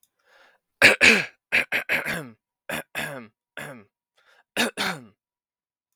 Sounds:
Cough